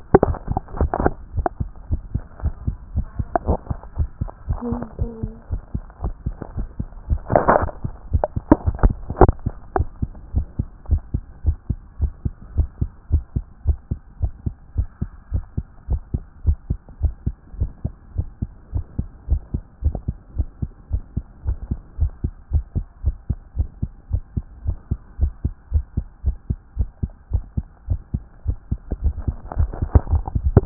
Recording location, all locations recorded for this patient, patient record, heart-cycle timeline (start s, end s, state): tricuspid valve (TV)
aortic valve (AV)+pulmonary valve (PV)+tricuspid valve (TV)+mitral valve (MV)
#Age: Adolescent
#Sex: Male
#Height: 143.0 cm
#Weight: 40.4 kg
#Pregnancy status: False
#Murmur: Absent
#Murmur locations: nan
#Most audible location: nan
#Systolic murmur timing: nan
#Systolic murmur shape: nan
#Systolic murmur grading: nan
#Systolic murmur pitch: nan
#Systolic murmur quality: nan
#Diastolic murmur timing: nan
#Diastolic murmur shape: nan
#Diastolic murmur grading: nan
#Diastolic murmur pitch: nan
#Diastolic murmur quality: nan
#Outcome: Normal
#Campaign: 2014 screening campaign
0.00	9.76	unannotated
9.76	9.88	S1
9.88	10.00	systole
10.00	10.10	S2
10.10	10.34	diastole
10.34	10.46	S1
10.46	10.58	systole
10.58	10.68	S2
10.68	10.90	diastole
10.90	11.02	S1
11.02	11.14	systole
11.14	11.22	S2
11.22	11.46	diastole
11.46	11.56	S1
11.56	11.68	systole
11.68	11.78	S2
11.78	12.00	diastole
12.00	12.12	S1
12.12	12.24	systole
12.24	12.34	S2
12.34	12.56	diastole
12.56	12.68	S1
12.68	12.80	systole
12.80	12.90	S2
12.90	13.12	diastole
13.12	13.24	S1
13.24	13.36	systole
13.36	13.44	S2
13.44	13.66	diastole
13.66	13.78	S1
13.78	13.90	systole
13.90	14.00	S2
14.00	14.20	diastole
14.20	14.32	S1
14.32	14.44	systole
14.44	14.54	S2
14.54	14.76	diastole
14.76	14.88	S1
14.88	15.00	systole
15.00	15.10	S2
15.10	15.32	diastole
15.32	15.44	S1
15.44	15.56	systole
15.56	15.66	S2
15.66	15.90	diastole
15.90	16.00	S1
16.00	16.12	systole
16.12	16.22	S2
16.22	16.46	diastole
16.46	16.58	S1
16.58	16.70	systole
16.70	16.78	S2
16.78	17.02	diastole
17.02	17.14	S1
17.14	17.26	systole
17.26	17.34	S2
17.34	17.58	diastole
17.58	17.70	S1
17.70	17.84	systole
17.84	17.94	S2
17.94	18.16	diastole
18.16	18.26	S1
18.26	18.40	systole
18.40	18.50	S2
18.50	18.74	diastole
18.74	18.84	S1
18.84	18.98	systole
18.98	19.08	S2
19.08	19.30	diastole
19.30	19.42	S1
19.42	19.54	systole
19.54	19.62	S2
19.62	19.84	diastole
19.84	19.96	S1
19.96	20.08	systole
20.08	20.16	S2
20.16	20.36	diastole
20.36	20.48	S1
20.48	20.62	systole
20.62	20.70	S2
20.70	20.92	diastole
20.92	21.02	S1
21.02	21.16	systole
21.16	21.24	S2
21.24	21.46	diastole
21.46	21.58	S1
21.58	21.70	systole
21.70	21.78	S2
21.78	22.00	diastole
22.00	22.12	S1
22.12	22.24	systole
22.24	22.32	S2
22.32	22.52	diastole
22.52	22.64	S1
22.64	22.76	systole
22.76	22.84	S2
22.84	23.04	diastole
23.04	23.16	S1
23.16	23.28	systole
23.28	23.38	S2
23.38	23.56	diastole
23.56	23.68	S1
23.68	23.82	systole
23.82	23.90	S2
23.90	24.12	diastole
24.12	24.22	S1
24.22	24.36	systole
24.36	24.44	S2
24.44	24.66	diastole
24.66	24.76	S1
24.76	24.90	systole
24.90	24.98	S2
24.98	25.20	diastole
25.20	25.32	S1
25.32	25.44	systole
25.44	25.52	S2
25.52	25.72	diastole
25.72	25.84	S1
25.84	25.96	systole
25.96	26.06	S2
26.06	26.24	diastole
26.24	26.36	S1
26.36	26.48	systole
26.48	26.58	S2
26.58	26.78	diastole
26.78	26.88	S1
26.88	27.02	systole
27.02	27.10	S2
27.10	27.32	diastole
27.32	27.44	S1
27.44	27.56	systole
27.56	27.66	S2
27.66	27.88	diastole
27.88	28.00	S1
28.00	28.12	systole
28.12	28.22	S2
28.22	28.46	diastole
28.46	28.58	S1
28.58	28.70	systole
28.70	28.80	S2
28.80	29.02	diastole
29.02	29.14	S1
29.14	29.26	systole
29.26	29.36	S2
29.36	29.58	diastole
29.58	30.66	unannotated